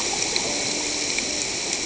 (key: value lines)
label: ambient
recorder: HydroMoth